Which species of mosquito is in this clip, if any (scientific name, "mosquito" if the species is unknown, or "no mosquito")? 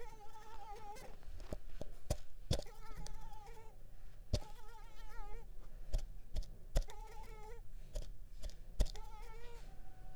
Mansonia uniformis